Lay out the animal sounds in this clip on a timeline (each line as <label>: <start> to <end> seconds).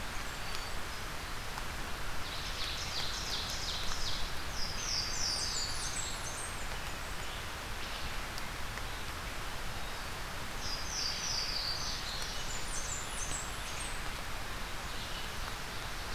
Ovenbird (Seiurus aurocapilla): 2.2 to 4.3 seconds
Louisiana Waterthrush (Parkesia motacilla): 4.3 to 6.1 seconds
Blackburnian Warbler (Setophaga fusca): 5.0 to 6.8 seconds
Louisiana Waterthrush (Parkesia motacilla): 10.5 to 12.5 seconds
Blackburnian Warbler (Setophaga fusca): 12.2 to 14.0 seconds